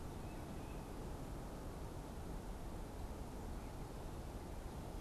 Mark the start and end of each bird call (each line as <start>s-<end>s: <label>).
0.0s-1.1s: Tufted Titmouse (Baeolophus bicolor)